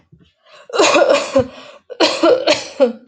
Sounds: Cough